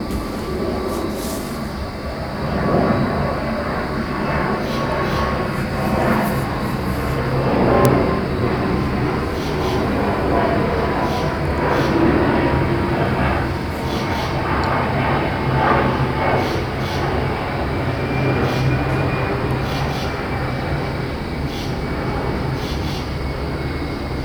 Is someone sweeping the floor?
no